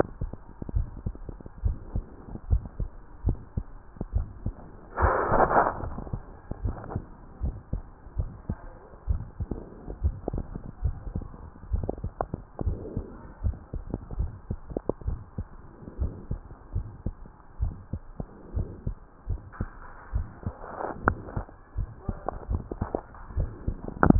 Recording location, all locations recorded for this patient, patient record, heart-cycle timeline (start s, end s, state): tricuspid valve (TV)
aortic valve (AV)+pulmonary valve (PV)+tricuspid valve (TV)+mitral valve (MV)
#Age: Child
#Sex: Male
#Height: 130.0 cm
#Weight: 30.3 kg
#Pregnancy status: False
#Murmur: Present
#Murmur locations: aortic valve (AV)+mitral valve (MV)+pulmonary valve (PV)+tricuspid valve (TV)
#Most audible location: mitral valve (MV)
#Systolic murmur timing: Holosystolic
#Systolic murmur shape: Plateau
#Systolic murmur grading: II/VI
#Systolic murmur pitch: Low
#Systolic murmur quality: Blowing
#Diastolic murmur timing: nan
#Diastolic murmur shape: nan
#Diastolic murmur grading: nan
#Diastolic murmur pitch: nan
#Diastolic murmur quality: nan
#Outcome: Normal
#Campaign: 2015 screening campaign
0.00	1.14	unannotated
1.14	1.64	diastole
1.64	1.80	S1
1.80	1.92	systole
1.92	2.06	S2
2.06	2.48	diastole
2.48	2.64	S1
2.64	2.78	systole
2.78	2.88	S2
2.88	3.26	diastole
3.26	3.40	S1
3.40	3.56	systole
3.56	3.68	S2
3.68	4.10	diastole
4.10	4.26	S1
4.26	4.44	systole
4.44	4.56	S2
4.56	4.98	diastole
4.98	5.14	S1
5.14	5.32	systole
5.32	5.48	S2
5.48	5.86	diastole
5.86	5.96	S1
5.96	6.12	systole
6.12	6.22	S2
6.22	6.62	diastole
6.62	6.76	S1
6.76	6.94	systole
6.94	7.02	S2
7.02	7.42	diastole
7.42	7.56	S1
7.56	7.72	systole
7.72	7.82	S2
7.82	8.16	diastole
8.16	8.31	S1
8.31	8.48	systole
8.48	8.56	S2
8.56	9.06	diastole
9.06	9.22	S1
9.22	9.38	systole
9.38	9.50	S2
9.50	10.00	diastole
10.00	10.16	S1
10.16	10.32	systole
10.32	10.44	S2
10.44	10.82	diastole
10.82	10.96	S1
10.96	11.14	systole
11.14	11.26	S2
11.26	11.70	diastole
11.70	11.84	S1
11.84	12.02	systole
12.02	12.14	S2
12.14	12.60	diastole
12.60	12.78	S1
12.78	12.96	systole
12.96	13.04	S2
13.04	13.42	diastole
13.42	13.58	S1
13.58	13.74	systole
13.74	13.82	S2
13.82	14.20	diastole
14.20	14.32	S1
14.32	14.48	systole
14.48	14.58	S2
14.58	15.06	diastole
15.06	15.20	S1
15.20	15.36	systole
15.36	15.48	S2
15.48	16.00	diastole
16.00	16.12	S1
16.12	16.28	systole
16.28	16.38	S2
16.38	16.76	diastole
16.76	16.88	S1
16.88	17.04	systole
17.04	17.14	S2
17.14	17.60	diastole
17.60	17.74	S1
17.74	17.94	systole
17.94	18.02	S2
18.02	18.54	diastole
18.54	18.68	S1
18.68	18.82	systole
18.82	18.95	S2
18.95	19.28	diastole
19.28	19.42	S1
19.42	19.58	systole
19.58	19.68	S2
19.68	20.12	diastole
20.12	20.28	S1
20.28	20.46	systole
20.46	20.56	S2
20.56	20.73	diastole
20.73	24.19	unannotated